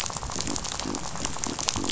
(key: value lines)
label: biophony, rattle
recorder: SoundTrap 500